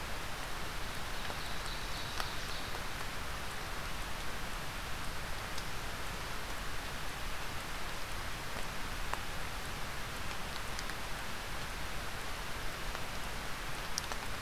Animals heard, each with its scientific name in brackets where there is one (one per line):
Ovenbird (Seiurus aurocapilla)